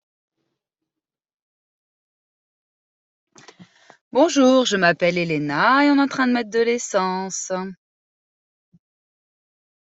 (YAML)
expert_labels:
- quality: no cough present
  dyspnea: false
  wheezing: false
  stridor: false
  choking: false
  congestion: false
  nothing: false
age: 39
gender: female
respiratory_condition: false
fever_muscle_pain: false
status: COVID-19